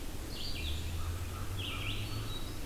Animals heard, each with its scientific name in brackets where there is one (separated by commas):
American Crow (Corvus brachyrhynchos), Red-eyed Vireo (Vireo olivaceus), Hermit Thrush (Catharus guttatus)